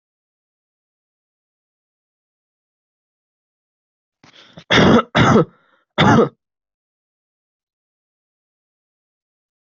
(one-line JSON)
{"expert_labels": [{"quality": "poor", "cough_type": "unknown", "dyspnea": false, "wheezing": false, "stridor": false, "choking": false, "congestion": false, "nothing": true, "diagnosis": "healthy cough", "severity": "pseudocough/healthy cough"}], "age": 20, "gender": "male", "respiratory_condition": true, "fever_muscle_pain": true, "status": "COVID-19"}